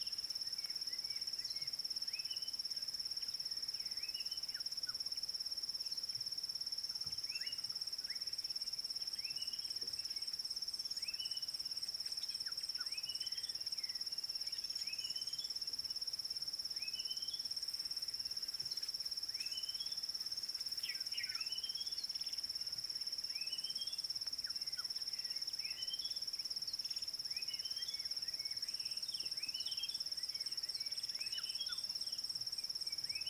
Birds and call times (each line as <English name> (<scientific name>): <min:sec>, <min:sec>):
Red-backed Scrub-Robin (Cercotrichas leucophrys): 0:04.2, 0:09.3, 0:13.2, 0:17.1, 0:21.7, 0:25.9, 0:31.5
Red-cheeked Cordonbleu (Uraeginthus bengalus): 0:15.0